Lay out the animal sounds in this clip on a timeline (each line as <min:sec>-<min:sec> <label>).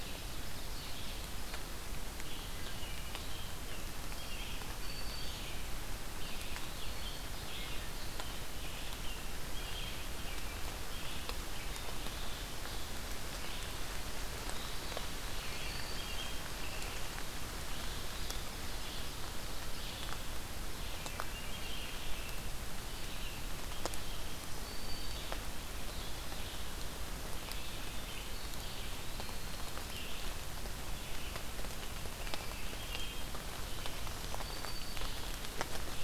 0:00.0-0:36.0 Red-eyed Vireo (Vireo olivaceus)
0:02.1-0:05.7 American Robin (Turdus migratorius)
0:04.6-0:05.7 Black-throated Green Warbler (Setophaga virens)
0:08.1-0:10.5 American Robin (Turdus migratorius)
0:15.0-0:16.4 Eastern Wood-Pewee (Contopus virens)
0:20.8-0:22.7 American Robin (Turdus migratorius)
0:24.5-0:25.7 Black-throated Green Warbler (Setophaga virens)
0:28.3-0:29.7 Eastern Wood-Pewee (Contopus virens)
0:34.1-0:35.2 Black-throated Green Warbler (Setophaga virens)